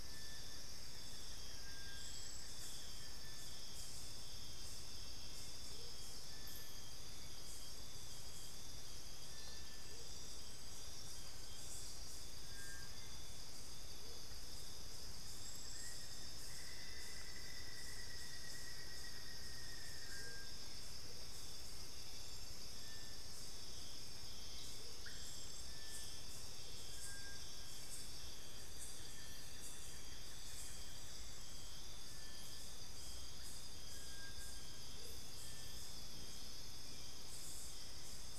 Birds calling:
unidentified bird, Black-faced Antthrush (Formicarius analis), Buff-throated Woodcreeper (Xiphorhynchus guttatus), Amazonian Motmot (Momotus momota)

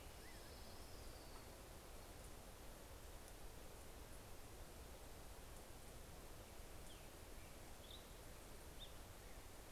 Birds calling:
Orange-crowned Warbler (Leiothlypis celata), Black-headed Grosbeak (Pheucticus melanocephalus)

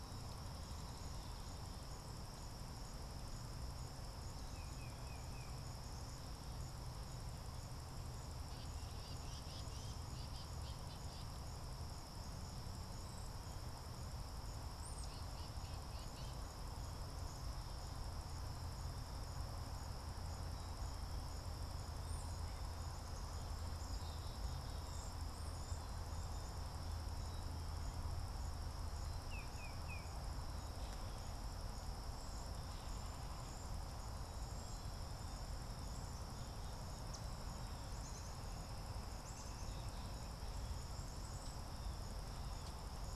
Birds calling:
Tufted Titmouse (Baeolophus bicolor), Black-capped Chickadee (Poecile atricapillus), Cedar Waxwing (Bombycilla cedrorum), Common Yellowthroat (Geothlypis trichas)

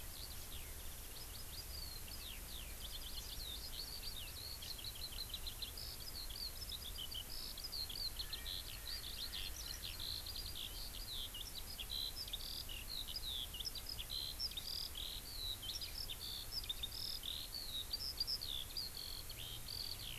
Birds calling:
Eurasian Skylark (Alauda arvensis), Erckel's Francolin (Pternistis erckelii)

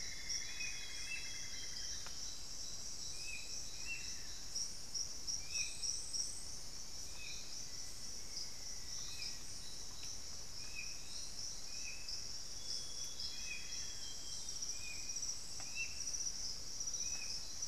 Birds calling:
Amazonian Barred-Woodcreeper (Dendrocolaptes certhia), Black-faced Antthrush (Formicarius analis), Amazonian Grosbeak (Cyanoloxia rothschildii), Hauxwell's Thrush (Turdus hauxwelli), Cinnamon-throated Woodcreeper (Dendrexetastes rufigula)

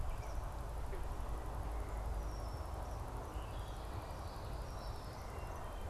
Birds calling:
Red-winged Blackbird (Agelaius phoeniceus), unidentified bird, Wood Thrush (Hylocichla mustelina), Eastern Kingbird (Tyrannus tyrannus)

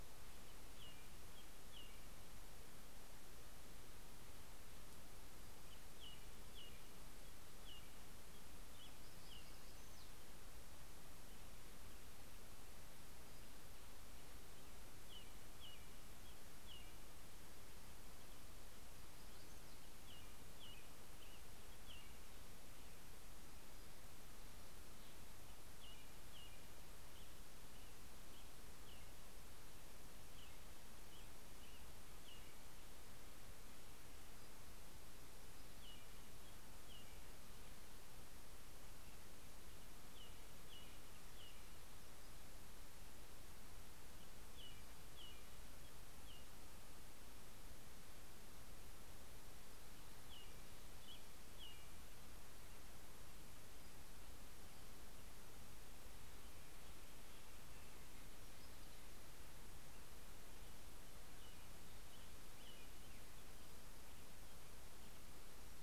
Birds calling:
Black-throated Gray Warbler (Setophaga nigrescens), American Robin (Turdus migratorius)

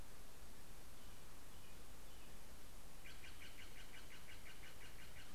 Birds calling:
American Robin (Turdus migratorius), Steller's Jay (Cyanocitta stelleri)

